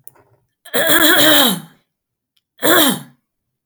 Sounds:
Throat clearing